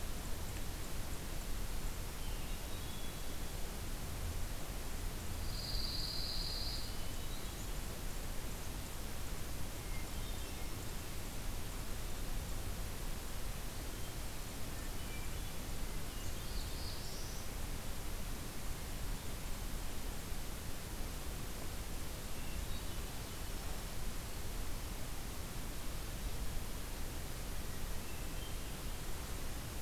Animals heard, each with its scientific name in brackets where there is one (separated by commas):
Black-throated Blue Warbler (Setophaga caerulescens), Hermit Thrush (Catharus guttatus), Pine Warbler (Setophaga pinus)